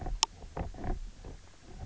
{"label": "biophony, knock croak", "recorder": "SoundTrap 300"}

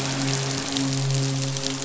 {"label": "biophony, midshipman", "recorder": "SoundTrap 500"}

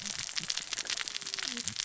{"label": "biophony, cascading saw", "recorder": "SoundTrap 600 or HydroMoth"}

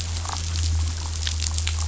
{"label": "anthrophony, boat engine", "recorder": "SoundTrap 500"}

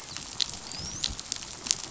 {"label": "biophony, dolphin", "recorder": "SoundTrap 500"}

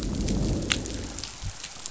{"label": "biophony, growl", "recorder": "SoundTrap 500"}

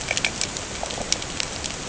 {"label": "ambient", "recorder": "HydroMoth"}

